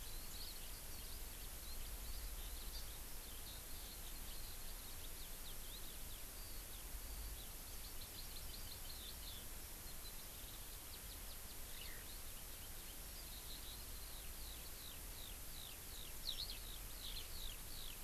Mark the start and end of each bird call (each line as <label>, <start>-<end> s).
Eurasian Skylark (Alauda arvensis), 0.0-9.4 s
Hawaii Amakihi (Chlorodrepanis virens), 2.8-2.9 s
Warbling White-eye (Zosterops japonicus), 10.8-11.6 s
Eurasian Skylark (Alauda arvensis), 11.8-12.1 s
Eurasian Skylark (Alauda arvensis), 13.2-17.9 s